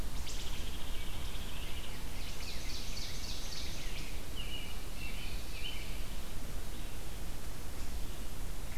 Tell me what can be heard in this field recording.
Wood Thrush, Hairy Woodpecker, Rose-breasted Grosbeak, Ovenbird, American Robin